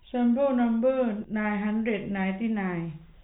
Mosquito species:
no mosquito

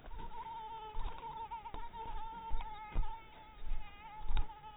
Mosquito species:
mosquito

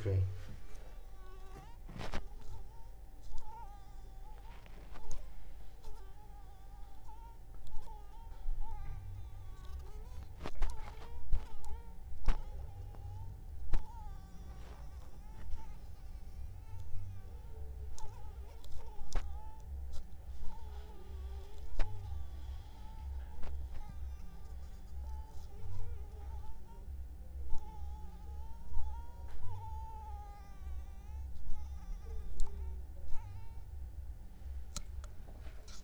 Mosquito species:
Anopheles funestus s.l.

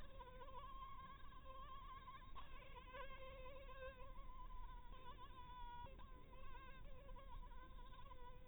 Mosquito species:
Anopheles maculatus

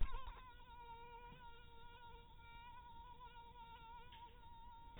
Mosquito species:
mosquito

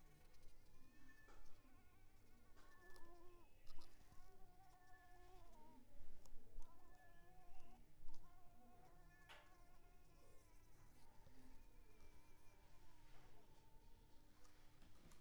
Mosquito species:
Mansonia africanus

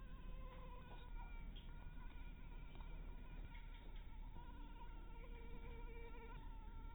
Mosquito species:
Anopheles harrisoni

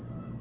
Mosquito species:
Aedes albopictus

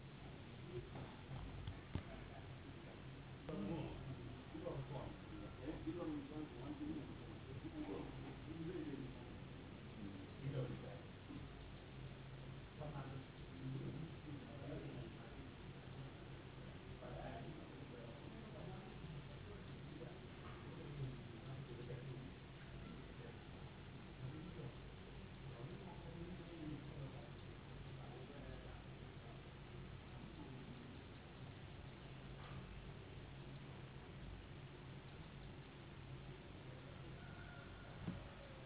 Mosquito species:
no mosquito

